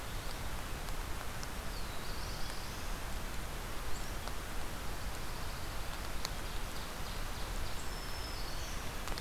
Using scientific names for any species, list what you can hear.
Setophaga caerulescens, Setophaga pinus, Seiurus aurocapilla, Setophaga virens